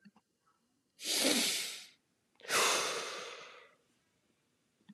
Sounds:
Sigh